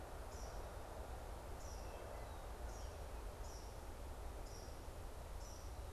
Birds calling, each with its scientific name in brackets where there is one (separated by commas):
Eastern Kingbird (Tyrannus tyrannus)